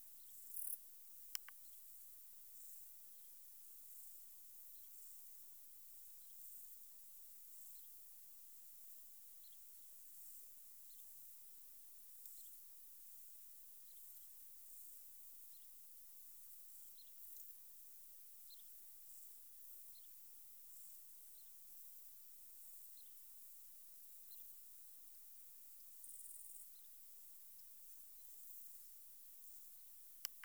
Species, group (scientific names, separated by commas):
Pholidoptera femorata, Orthoptera